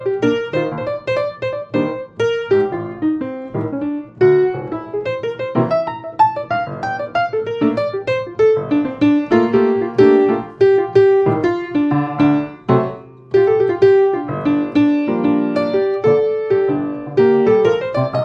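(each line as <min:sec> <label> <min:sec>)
0:00.0 An out-of-tune piano plays a rhythmical jazz pattern. 0:18.2
0:06.1 High-pitched out-of-tune piano sound. 0:06.4
0:12.7 An out-of-tune piano chord sounds briefly at a medium pitch. 0:13.3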